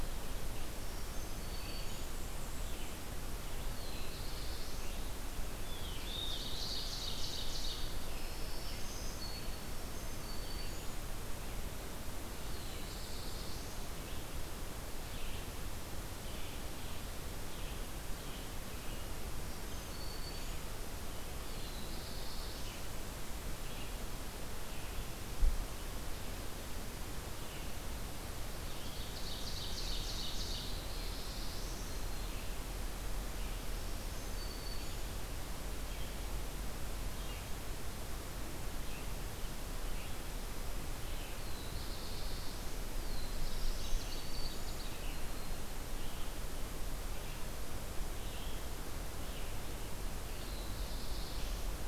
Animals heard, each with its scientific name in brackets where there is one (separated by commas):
Red-eyed Vireo (Vireo olivaceus), Ovenbird (Seiurus aurocapilla), Black-throated Blue Warbler (Setophaga caerulescens), Black-throated Green Warbler (Setophaga virens), Blackburnian Warbler (Setophaga fusca)